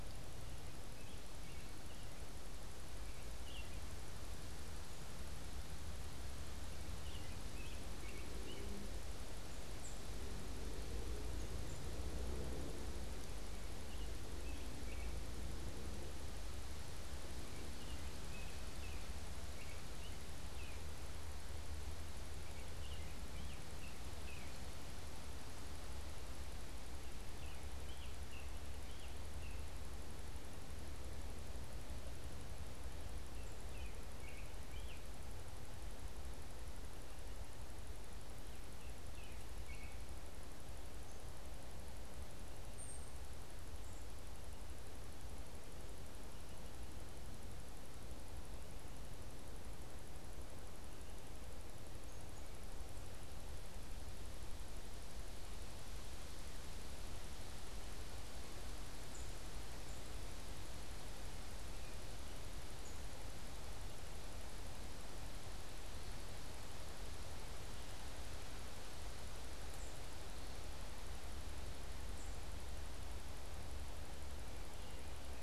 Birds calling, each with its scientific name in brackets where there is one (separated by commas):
American Robin (Turdus migratorius), Tufted Titmouse (Baeolophus bicolor)